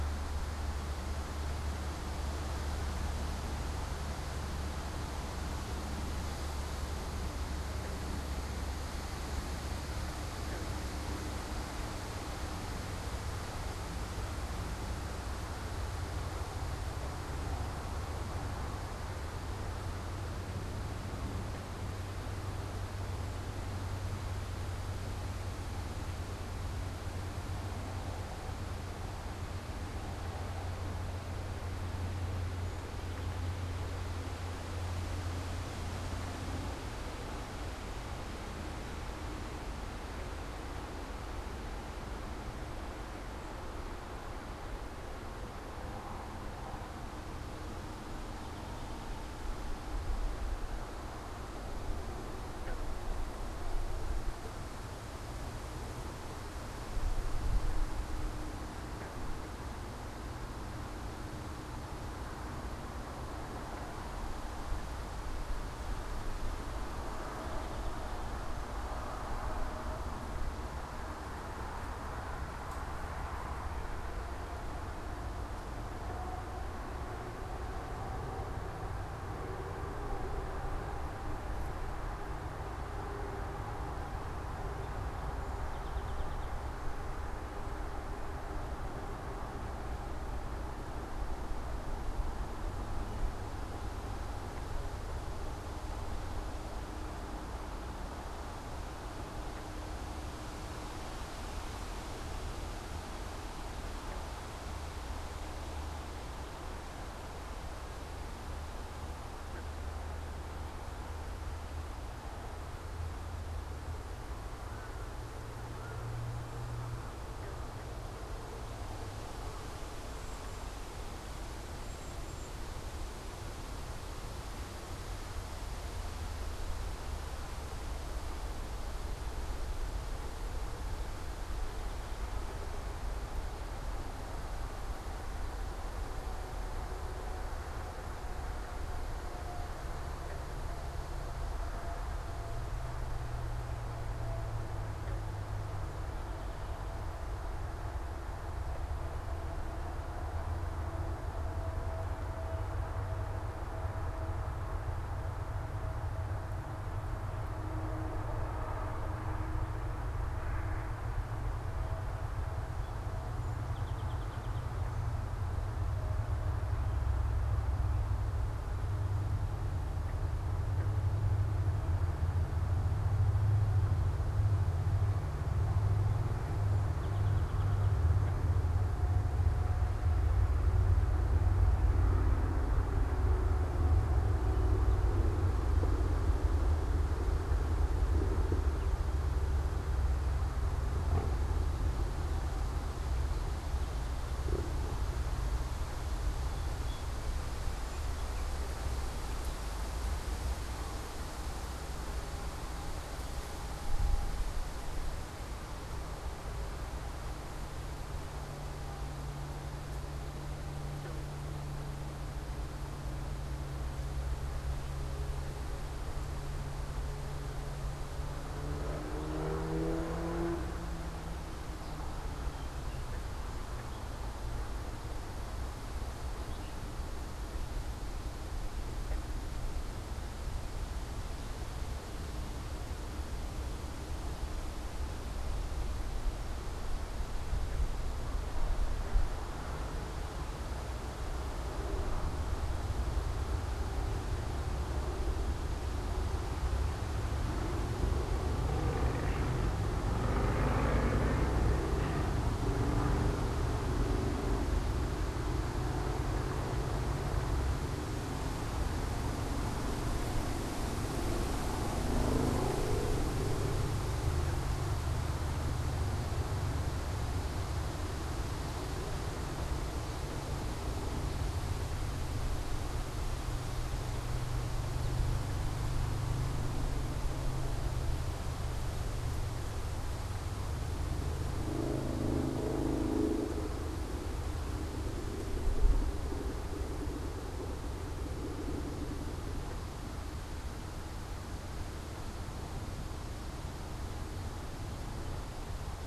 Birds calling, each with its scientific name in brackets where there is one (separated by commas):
Song Sparrow (Melospiza melodia), Cedar Waxwing (Bombycilla cedrorum), unidentified bird